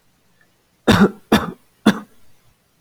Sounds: Cough